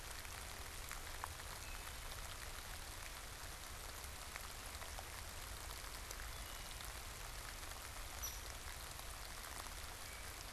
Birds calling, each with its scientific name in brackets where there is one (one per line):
Hairy Woodpecker (Dryobates villosus)
Wood Thrush (Hylocichla mustelina)